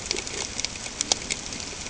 {"label": "ambient", "recorder": "HydroMoth"}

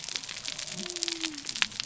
{"label": "biophony", "recorder": "SoundTrap 300"}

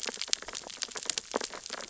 {"label": "biophony, sea urchins (Echinidae)", "recorder": "SoundTrap 600 or HydroMoth"}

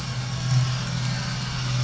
{"label": "anthrophony, boat engine", "recorder": "SoundTrap 500"}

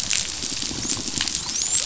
{"label": "biophony, dolphin", "recorder": "SoundTrap 500"}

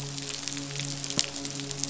{"label": "biophony, midshipman", "recorder": "SoundTrap 500"}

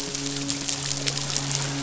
{"label": "biophony, midshipman", "recorder": "SoundTrap 500"}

